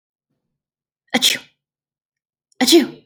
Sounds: Sneeze